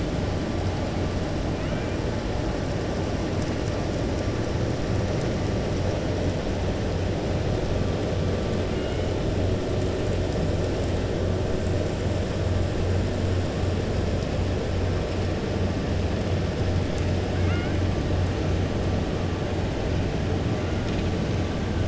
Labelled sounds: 8.7	9.1	killer whale, 1.4 to 3.0 kHz
17.3	17.8	killer whale, 1.3 to 2.9 kHz

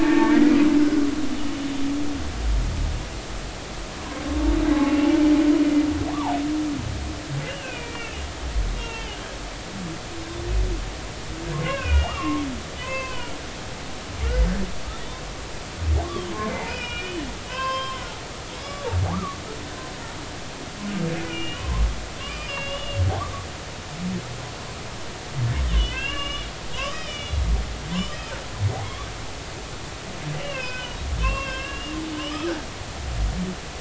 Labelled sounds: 0.0	0.5	humpback whale, 0.83 to 2.4 kHz
4.8	5.2	humpback whale, 2.6 to 3.1 kHz
6.1	6.4	humpback whale, 0.80 to 1.3 kHz
7.5	8.2	humpback whale, 1.4 to 3.0 kHz
8.8	9.2	humpback whale, 0.86 to 3.2 kHz
11.5	12.4	humpback whale, 0.96 to 3.0 kHz
12.8	13.4	humpback whale, 0.93 to 6.4 kHz
15.0	15.2	humpback whale, 3.3 to 3.7 kHz
16.6	18.1	humpback whale, 0.96 to 5.3 kHz
18.6	19.4	humpback whale, 1.1 to 5.2 kHz
21.3	21.8	humpback whale, 0.86 to 3.0 kHz
22.2	23.4	humpback whale, 0.96 to 5.1 kHz
25.7	28.3	humpback whale, 0.96 to 5.8 kHz
30.4	32.0	humpback whale, 0.99 to 3.3 kHz

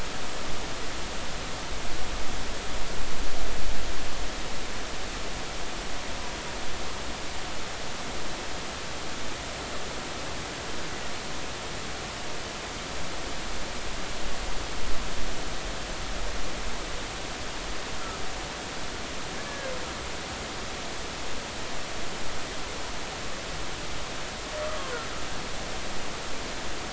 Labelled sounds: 19.5	19.7	humpback whale, 1.6 to 1.8 kHz

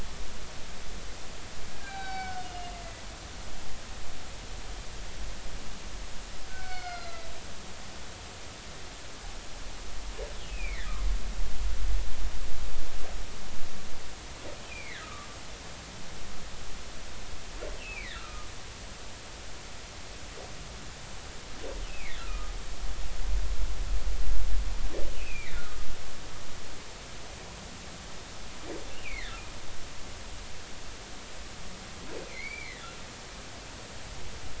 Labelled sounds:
1.8	2.8	humpback whale, 0.80 to 5.4 kHz
6.5	7.3	humpback whale, 1.3 to 5.1 kHz
10.5	10.9	humpback whale, 1.6 to 2.7 kHz
14.7	15.3	humpback whale, 1.1 to 2.7 kHz
17.8	18.5	humpback whale, 1.1 to 3.0 kHz
21.9	22.5	humpback whale, 1.2 to 2.7 kHz
25.2	25.6	humpback whale, 1.8 to 2.8 kHz
28.9	29.4	humpback whale, 1.5 to 2.9 kHz
32.3	32.9	humpback whale, 1.7 to 2.5 kHz

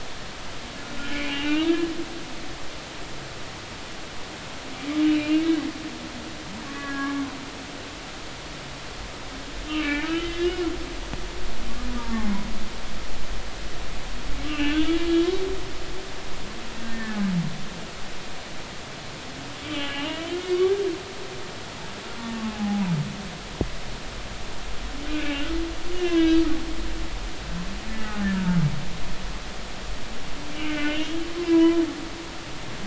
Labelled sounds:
0.0	1.9	humpback whale, 1.2 to 3.0 kHz
5.0	5.4	humpback whale, 2.3 to 3.0 kHz
6.7	7.2	humpback whale, 1.1 to 2.0 kHz
9.7	10.6	humpback whale, 1.2 to 3.9 kHz
14.5	14.8	humpback whale, 2.5 to 3.0 kHz
16.9	17.2	humpback whale, 1.7 to 1.9 kHz
19.6	20.7	humpback whale, 1.6 to 3.3 kHz
22.5	22.8	humpback whale, 0.80 to 0.86 kHz
25.9	26.4	humpback whale, 1.6 to 3.4 kHz
27.9	28.6	humpback whale, 0.86 to 2.0 kHz
30.6	31.8	humpback whale, 0.93 to 3.3 kHz

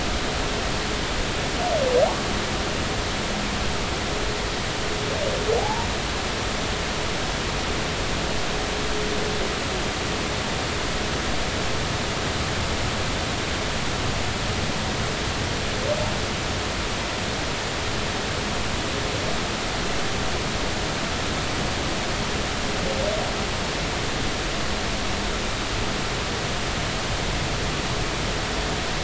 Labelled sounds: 5.6	5.9	humpback whale, 0.80 to 0.99 kHz

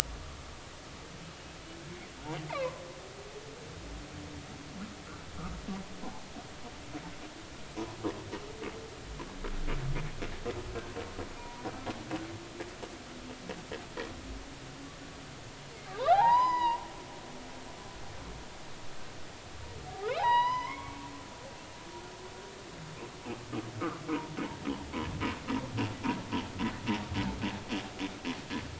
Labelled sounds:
2.5	2.8	humpback whale, 0.93 to 1.2 kHz
11.4	11.7	humpback whale, 0.90 to 1.0 kHz
15.9	16.8	humpback whale, 0.80 to 5.1 kHz
19.9	21.0	humpback whale, 0.80 to 5.1 kHz
23.8	24.0	humpback whale, 0.99 to 1.5 kHz

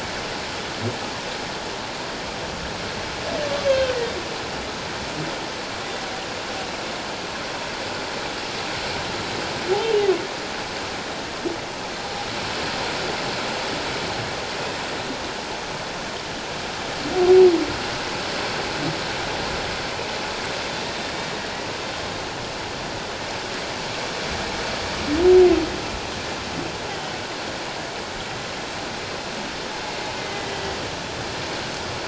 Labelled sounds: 3.7	4.0	humpback whale, 3.0 to 3.3 kHz
26.9	27.2	humpback whale, 3.0 to 3.2 kHz
30.2	30.8	humpback whale, 1.9 to 2.1 kHz

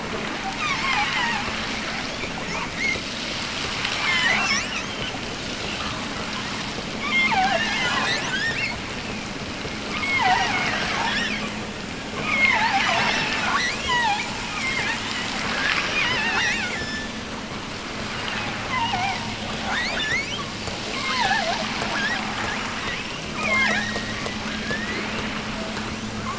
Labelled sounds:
0.5	1.6	killer whale, offshore, 0.57 to 6.8 kHz
2.3	2.8	killer whale, offshore, 0.68 to 6.9 kHz
3.9	4.9	killer whale, offshore, 0.73 to 7.8 kHz
6.9	8.9	killer whale, offshore, 0.41 to 7.9 kHz
9.8	11.6	killer whale, offshore, 0.55 to 6.3 kHz
12.1	16.9	killer whale, offshore, 0.39 to 6.3 kHz
18.6	20.5	killer whale, offshore, 0.52 to 7.6 kHz
20.8	22.4	killer whale, offshore, 0.36 to 5.7 kHz
23.3	25.3	killer whale, offshore, 0.52 to 5.3 kHz

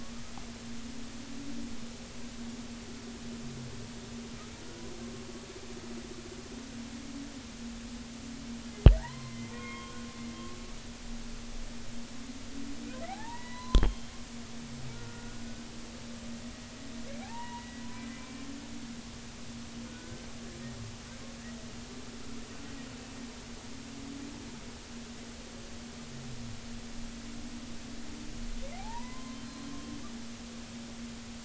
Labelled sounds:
9.0	9.9	humpback whale, 0.80 to 4.3 kHz
13.1	14.1	humpback whale, 0.80 to 4.1 kHz
14.9	15.4	humpback whale, 1.4 to 1.5 kHz
17.2	18.5	humpback whale, 0.80 to 2.4 kHz
19.9	20.3	humpback whale, 1.4 to 1.6 kHz
28.8	29.7	humpback whale, 0.80 to 4.2 kHz

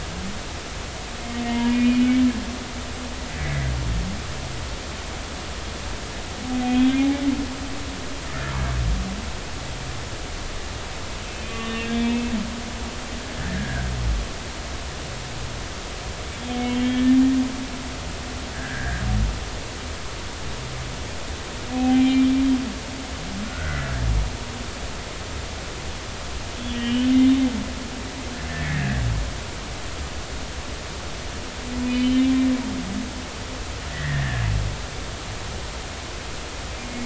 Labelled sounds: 1.5	2.1	humpback whale, 0.90 to 2.5 kHz
6.6	7.1	humpback whale, 2.3 to 3.5 kHz
11.6	12.3	humpback whale, 1.8 to 3.0 kHz
13.5	13.8	humpback whale, 1.5 to 1.9 kHz
16.8	17.2	humpback whale, 1.7 to 1.9 kHz
18.5	19.0	humpback whale, 1.5 to 2.0 kHz
21.7	22.3	humpback whale, 0.80 to 2.5 kHz
23.5	24.0	humpback whale, 1.3 to 1.8 kHz
26.7	27.1	humpback whale, 2.8 to 3.3 kHz
28.5	29.1	humpback whale, 1.6 to 2.0 kHz
31.8	32.3	humpback whale, 2.2 to 3.9 kHz
33.9	34.4	humpback whale, 1.6 to 2.1 kHz

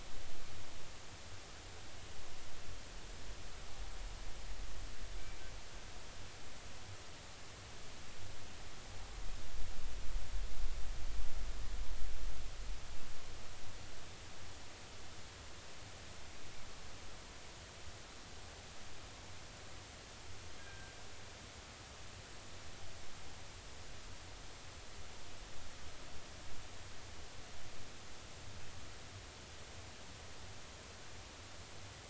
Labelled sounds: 20.6	20.9	killer whale, northern resident, G clan, call N24ii, 1.5 to 1.7 kHz

